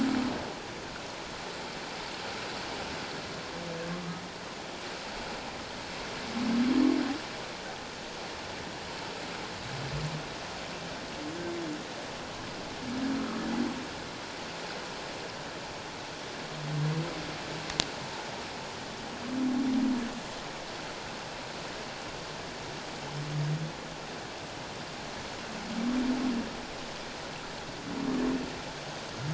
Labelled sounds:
18.0	18.3	humpback whale, 0.81 to 1.0 kHz

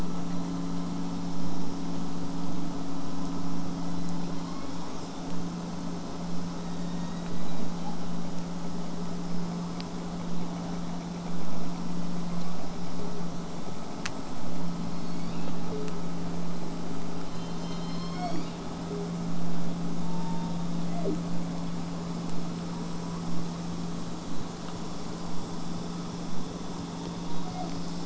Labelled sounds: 4.7	5.1	killer whale, southern resident, J pod, 5.0 to 8.0 kHz
6.5	8.0	killer whale, southern resident, J pod, 0.52 to 8.0 kHz
12.4	12.6	killer whale, southern resident, J pod, 1.9 to 4.6 kHz
14.8	16.0	killer whale, southern resident, J pod, call S01, 0.31 to 6.9 kHz
17.2	19.1	killer whale, southern resident, J pod, call S01, 0.19 to 8.0 kHz
20.0	21.2	killer whale, southern resident, J pod, call S01, 0.19 to 3.8 kHz
26.9	27.9	killer whale, southern resident, J pod, call S01, 0.28 to 3.9 kHz

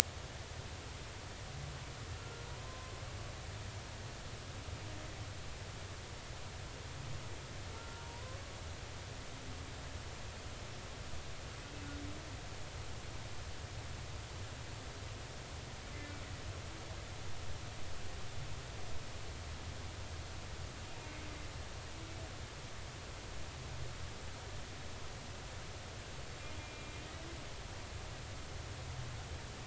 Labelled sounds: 2.2	2.9	humpback whale, 0.93 to 1.4 kHz
7.7	8.4	humpback whale, 0.90 to 1.4 kHz
26.6	26.9	humpback whale, 2.3 to 2.5 kHz

